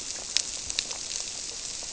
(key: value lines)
label: biophony
recorder: SoundTrap 300